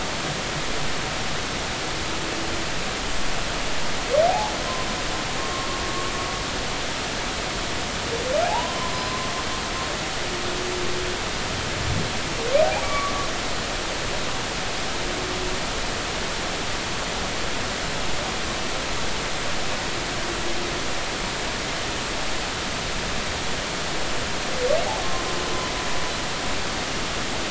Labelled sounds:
4.3	4.5	humpback whale, 0.80 to 0.96 kHz
5.4	5.7	humpback whale, 1.0 to 1.1 kHz
8.4	9.3	humpback whale, 0.80 to 5.1 kHz
12.8	13.1	humpback whale, 1.1 to 2.3 kHz

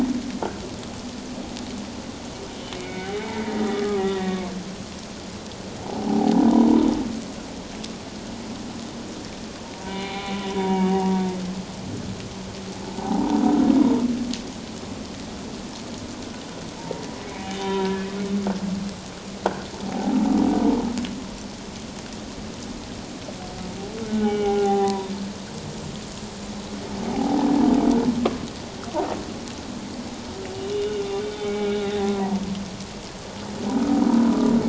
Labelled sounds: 2.7	4.4	humpback whale, 0.78 to 2.3 kHz
5.8	6.4	humpback whale, 0.78 to 1.0 kHz
9.8	11.2	humpback whale, 0.78 to 3.6 kHz
13.0	13.4	humpback whale, 0.78 to 1.0 kHz
16.8	18.1	humpback whale, 0.88 to 3.8 kHz
19.9	20.2	humpback whale, 0.78 to 0.91 kHz
24.1	25.1	humpback whale, 0.78 to 3.0 kHz
27.1	27.5	humpback whale, 0.78 to 1.0 kHz
30.7	31.8	humpback whale, 2.2 to 3.2 kHz
32.2	32.5	humpback whale, 0.84 to 1.0 kHz

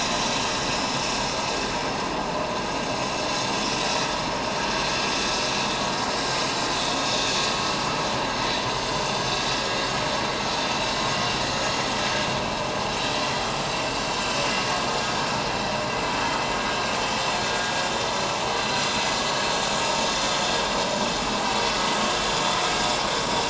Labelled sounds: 0.7	1.0	vessel noise, 5.1 to 5.3 kHz
7.0	7.3	vessel noise, 3.6 to 3.8 kHz
15.1	15.3	vessel noise, 6.5 to 6.6 kHz

